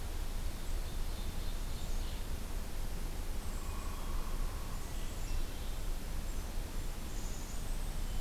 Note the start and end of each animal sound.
0.6s-2.4s: Ovenbird (Seiurus aurocapilla)
1.6s-2.1s: Black-capped Chickadee (Poecile atricapillus)
3.3s-4.0s: Black-capped Chickadee (Poecile atricapillus)
4.8s-5.8s: Black-capped Chickadee (Poecile atricapillus)
7.0s-7.6s: Black-capped Chickadee (Poecile atricapillus)

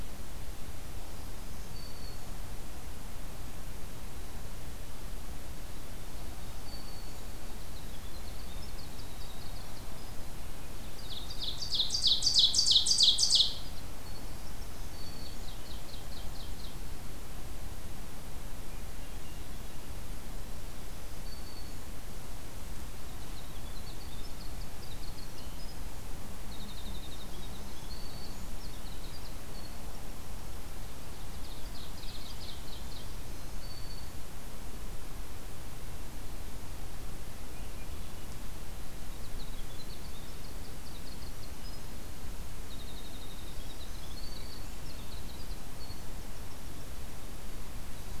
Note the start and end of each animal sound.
1.3s-2.4s: Black-throated Green Warbler (Setophaga virens)
6.5s-7.3s: Black-throated Green Warbler (Setophaga virens)
6.9s-10.3s: Winter Wren (Troglodytes hiemalis)
10.7s-13.7s: Ovenbird (Seiurus aurocapilla)
13.0s-14.8s: Winter Wren (Troglodytes hiemalis)
14.6s-15.6s: Black-throated Green Warbler (Setophaga virens)
14.8s-16.8s: Ovenbird (Seiurus aurocapilla)
18.7s-20.0s: Swainson's Thrush (Catharus ustulatus)
20.8s-21.9s: Black-throated Green Warbler (Setophaga virens)
22.9s-26.0s: Winter Wren (Troglodytes hiemalis)
26.3s-30.4s: Winter Wren (Troglodytes hiemalis)
27.4s-28.6s: Black-throated Green Warbler (Setophaga virens)
31.2s-33.2s: Ovenbird (Seiurus aurocapilla)
33.0s-34.3s: Black-throated Green Warbler (Setophaga virens)
37.2s-38.5s: Swainson's Thrush (Catharus ustulatus)
38.8s-41.8s: Winter Wren (Troglodytes hiemalis)
42.6s-46.9s: Winter Wren (Troglodytes hiemalis)
43.6s-44.9s: Black-throated Green Warbler (Setophaga virens)

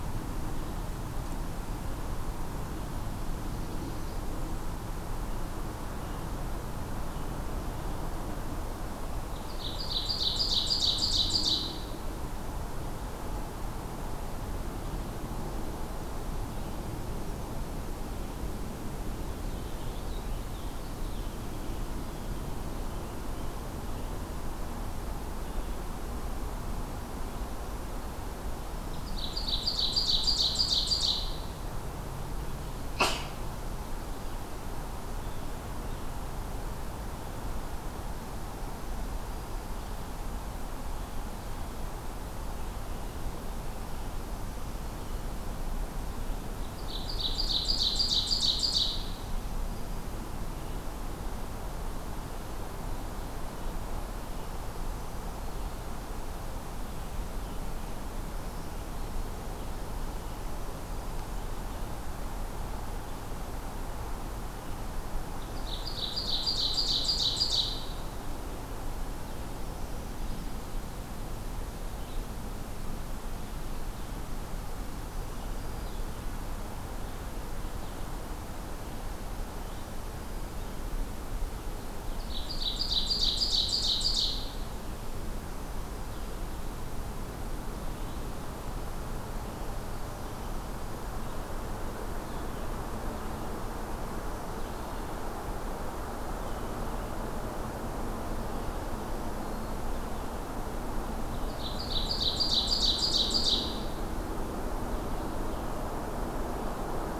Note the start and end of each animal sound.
9.2s-12.1s: Ovenbird (Seiurus aurocapilla)
19.0s-21.6s: Purple Finch (Haemorhous purpureus)
28.8s-31.5s: Ovenbird (Seiurus aurocapilla)
46.7s-49.2s: Ovenbird (Seiurus aurocapilla)
65.2s-68.1s: Ovenbird (Seiurus aurocapilla)
69.6s-80.9s: Red-eyed Vireo (Vireo olivaceus)
74.9s-76.1s: Black-throated Green Warbler (Setophaga virens)
81.9s-84.5s: Ovenbird (Seiurus aurocapilla)
85.6s-88.4s: Red-eyed Vireo (Vireo olivaceus)
101.2s-104.1s: Ovenbird (Seiurus aurocapilla)

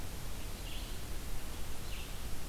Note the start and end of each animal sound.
0.0s-2.5s: Red-eyed Vireo (Vireo olivaceus)

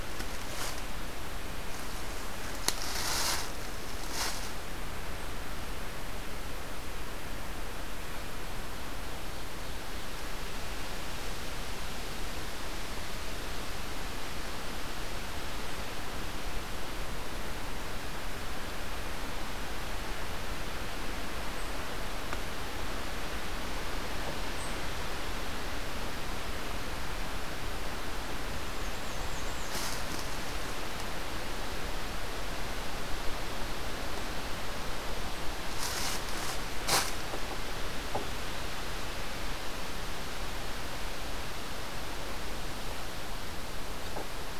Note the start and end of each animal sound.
28.6s-29.9s: Black-and-white Warbler (Mniotilta varia)

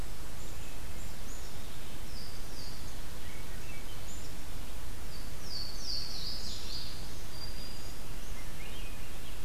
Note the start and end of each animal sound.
0.0s-1.7s: Black-capped Chickadee (Poecile atricapillus)
1.9s-3.1s: Louisiana Waterthrush (Parkesia motacilla)
3.1s-4.1s: Swainson's Thrush (Catharus ustulatus)
4.0s-4.4s: Black-capped Chickadee (Poecile atricapillus)
5.0s-6.9s: Louisiana Waterthrush (Parkesia motacilla)
6.9s-8.1s: Black-throated Green Warbler (Setophaga virens)
8.3s-9.4s: Swainson's Thrush (Catharus ustulatus)

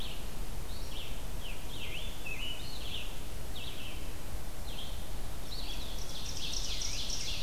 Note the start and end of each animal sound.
0.0s-7.4s: Red-eyed Vireo (Vireo olivaceus)
1.2s-3.3s: Scarlet Tanager (Piranga olivacea)
5.4s-7.4s: Ovenbird (Seiurus aurocapilla)
5.7s-7.4s: Scarlet Tanager (Piranga olivacea)

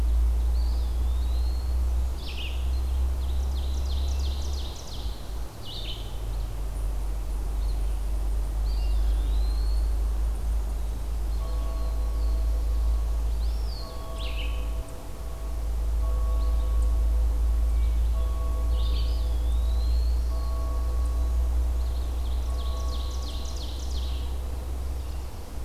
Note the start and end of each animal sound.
0.0s-0.8s: Ovenbird (Seiurus aurocapilla)
0.0s-19.2s: Red-eyed Vireo (Vireo olivaceus)
0.3s-1.8s: Eastern Wood-Pewee (Contopus virens)
3.1s-5.5s: Ovenbird (Seiurus aurocapilla)
8.5s-10.1s: Eastern Wood-Pewee (Contopus virens)
11.6s-13.4s: Black-throated Blue Warbler (Setophaga caerulescens)
13.1s-14.0s: Eastern Wood-Pewee (Contopus virens)
18.7s-20.4s: Eastern Wood-Pewee (Contopus virens)
19.8s-21.6s: Black-throated Blue Warbler (Setophaga caerulescens)
21.5s-24.3s: Ovenbird (Seiurus aurocapilla)

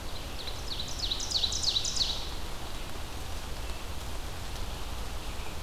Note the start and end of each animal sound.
0.0s-2.4s: Ovenbird (Seiurus aurocapilla)

